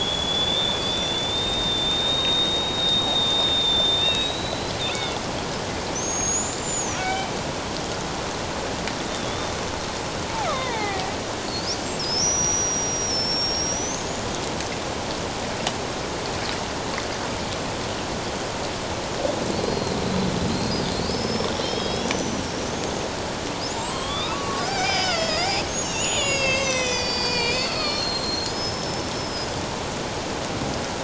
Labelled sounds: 0.0	5.2	killer whale, Bigg's (transient), 2.1 to 4.1 kHz
5.9	7.3	killer whale, Bigg's (transient), 1.3 to 7.3 kHz
9.1	9.5	killer whale, Bigg's (transient), 3.3 to 3.7 kHz
10.5	14.2	killer whale, Bigg's (transient), 0.78 to 7.1 kHz
19.6	20.0	killer whale, Bigg's (transient), 4.1 to 4.3 kHz
21.1	22.5	killer whale, Bigg's (transient), 3.1 to 6.1 kHz
22.7	23.0	killer whale, Bigg's (transient), 6.3 to 6.7 kHz
23.7	29.5	killer whale, Bigg's (transient), 0.78 to 8.0 kHz

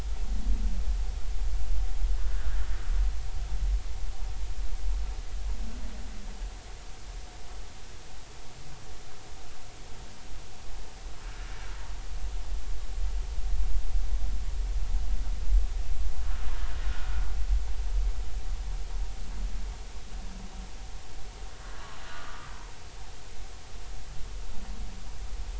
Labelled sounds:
16.8	17.2	humpback whale, 1.3 to 1.6 kHz
22.1	22.5	humpback whale, 1.1 to 1.3 kHz

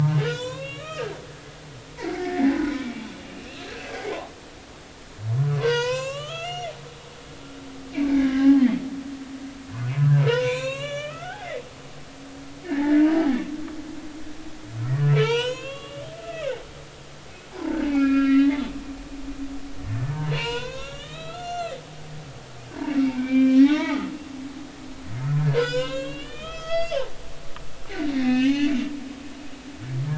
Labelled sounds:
2.0	3.6	humpback whale, 0.96 to 2.9 kHz
4.1	4.4	humpback whale, 0.80 to 1.2 kHz
5.4	6.7	humpback whale, 0.90 to 7.7 kHz
7.9	8.6	humpback whale, 0.80 to 2.5 kHz
10.0	11.5	humpback whale, 0.90 to 7.3 kHz
12.6	13.0	humpback whale, 1.6 to 2.1 kHz
15.0	16.5	humpback whale, 0.86 to 7.1 kHz
17.5	18.8	humpback whale, 0.80 to 4.0 kHz
19.9	21.8	humpback whale, 0.90 to 7.2 kHz
22.9	24.1	humpback whale, 0.80 to 5.6 kHz
25.2	27.0	humpback whale, 0.96 to 6.8 kHz
28.1	28.7	humpback whale, 1.7 to 3.9 kHz

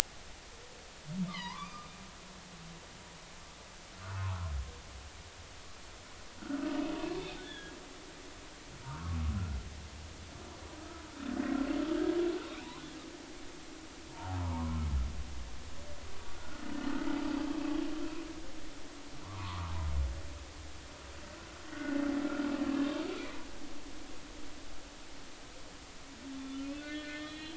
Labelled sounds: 1.3	1.9	humpback whale, 0.83 to 5.1 kHz
4.0	4.5	humpback whale, 0.83 to 1.6 kHz
6.4	6.7	humpback whale, 1.3 to 1.6 kHz
7.4	7.8	humpback whale, 1.6 to 3.6 kHz
8.8	9.2	humpback whale, 1.0 to 1.5 kHz
14.3	14.8	humpback whale, 0.80 to 1.2 kHz
16.2	16.6	humpback whale, 1.3 to 1.5 kHz
19.2	19.7	humpback whale, 0.86 to 1.4 kHz
21.7	22.5	humpback whale, 1.2 to 1.6 kHz
26.3	27.5	humpback whale, 1.7 to 4.1 kHz

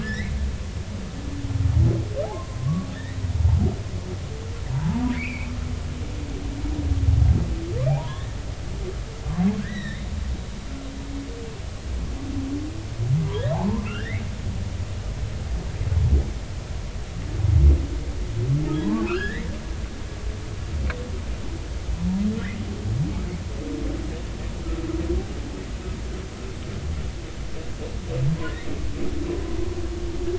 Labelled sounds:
0.0	0.3	humpback whale, 1.6 to 5.3 kHz
2.2	2.9	humpback whale, 0.80 to 1.2 kHz
4.7	5.5	humpback whale, 0.83 to 2.8 kHz
7.9	8.4	humpback whale, 0.80 to 3.8 kHz
9.6	10.1	humpback whale, 1.5 to 4.0 kHz
13.5	14.2	humpback whale, 0.80 to 3.0 kHz
18.8	19.5	humpback whale, 0.83 to 3.4 kHz

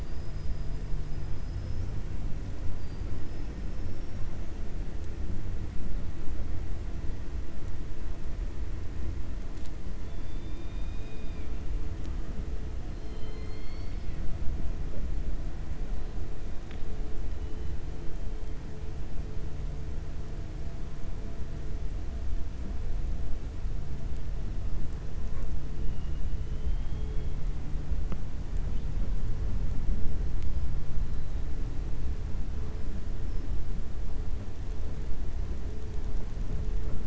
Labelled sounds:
0.0	0.8	killer whale, 4.8 to 5.4 kHz
1.3	1.9	killer whale, 5.0 to 6.0 kHz
10.0	11.5	killer whale, 2.2 to 5.0 kHz
12.9	14.2	killer whale, 1.4 to 5.6 kHz
26.4	27.3	killer whale, 2.2 to 3.4 kHz

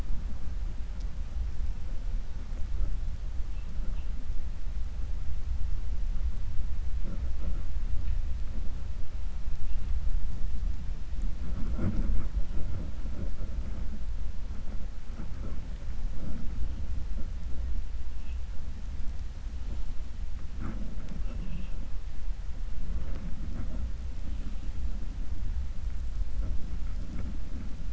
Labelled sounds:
21.1	21.8	vessel noise, 2.3 to 3.5 kHz

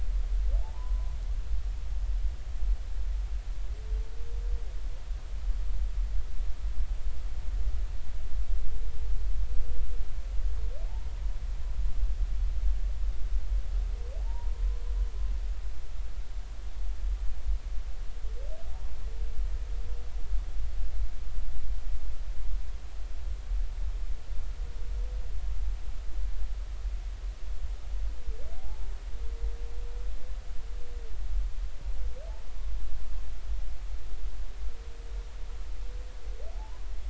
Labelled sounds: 0.6	1.1	humpback whale, 0.80 to 1.1 kHz
14.2	14.5	humpback whale, 0.83 to 1.1 kHz
28.6	28.9	humpback whale, 0.80 to 0.96 kHz
36.5	36.8	humpback whale, 0.80 to 1.1 kHz

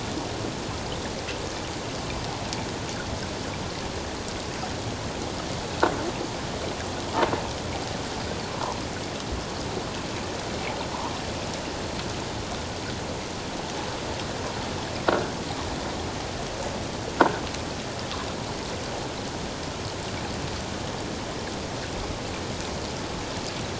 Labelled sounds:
8.5	8.8	croaking sound likely from a nearby submerged object, 0.84 to 1.2 kHz

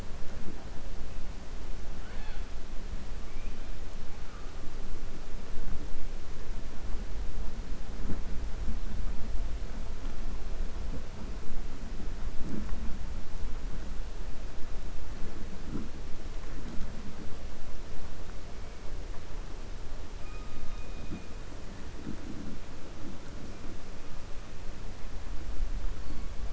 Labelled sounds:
1.9	2.4	killer whale, 0.55 to 4.4 kHz

